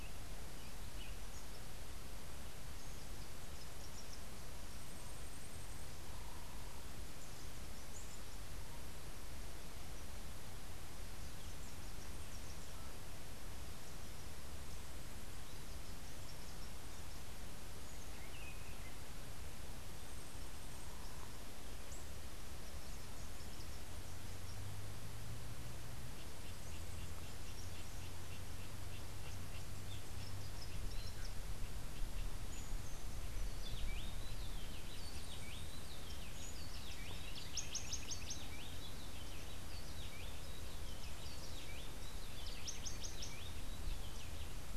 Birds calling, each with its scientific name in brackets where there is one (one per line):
unidentified bird
Rufous-capped Warbler (Basileuterus rufifrons)
Rufous-breasted Wren (Pheugopedius rutilus)
Buff-throated Saltator (Saltator maximus)